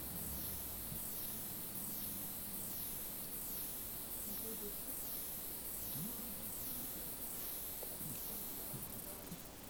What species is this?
Stenobothrus lineatus